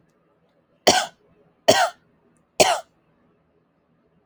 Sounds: Cough